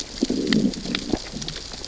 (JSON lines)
{"label": "biophony, growl", "recorder": "SoundTrap 600 or HydroMoth"}